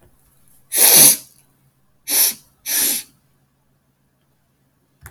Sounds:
Sniff